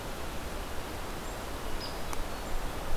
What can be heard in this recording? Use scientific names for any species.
Dryobates villosus